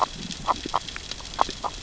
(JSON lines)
{"label": "biophony, grazing", "recorder": "SoundTrap 600 or HydroMoth"}